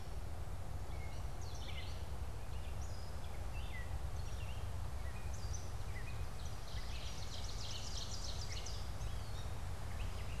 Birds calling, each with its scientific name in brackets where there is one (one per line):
Ovenbird (Seiurus aurocapilla)
Gray Catbird (Dumetella carolinensis)
Red-eyed Vireo (Vireo olivaceus)